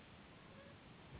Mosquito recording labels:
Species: Anopheles gambiae s.s.; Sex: female; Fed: unfed; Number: one; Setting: insect culture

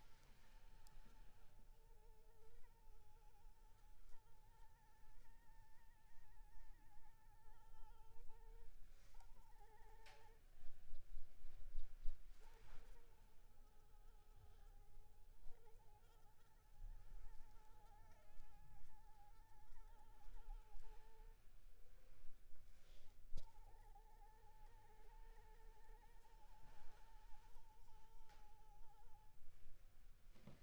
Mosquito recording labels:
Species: Anopheles arabiensis; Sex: female; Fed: unfed; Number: one; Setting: cup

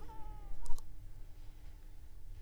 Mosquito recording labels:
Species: Anopheles arabiensis; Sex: female; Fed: unfed; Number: one; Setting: cup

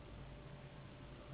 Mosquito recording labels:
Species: Anopheles gambiae s.s.; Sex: female; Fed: unfed; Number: one; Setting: insect culture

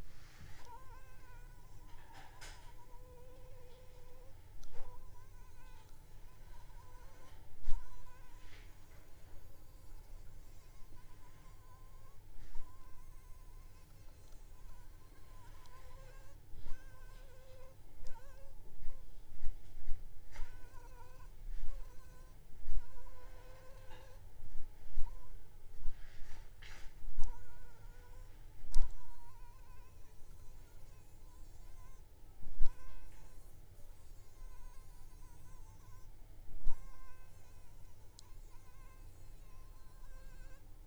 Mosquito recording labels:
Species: Anopheles funestus s.s.; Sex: female; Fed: unfed; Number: one; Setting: cup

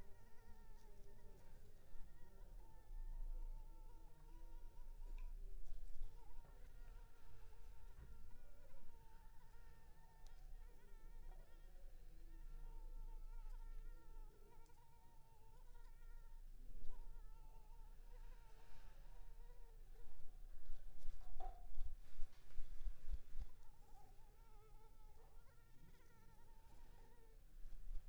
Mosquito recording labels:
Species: Anopheles arabiensis; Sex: female; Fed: unfed; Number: one; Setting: cup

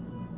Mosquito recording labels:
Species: Aedes albopictus; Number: one; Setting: insect culture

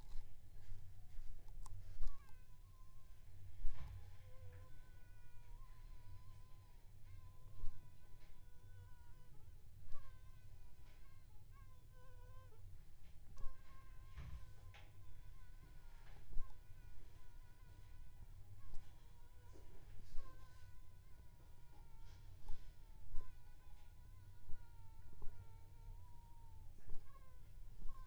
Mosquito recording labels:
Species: Aedes aegypti; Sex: female; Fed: unfed; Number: one; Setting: cup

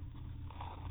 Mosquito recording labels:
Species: mosquito; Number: one; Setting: cup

